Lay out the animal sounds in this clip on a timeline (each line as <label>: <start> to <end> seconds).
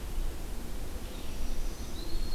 Red-eyed Vireo (Vireo olivaceus): 0.0 to 2.3 seconds
Black-throated Green Warbler (Setophaga virens): 1.0 to 2.3 seconds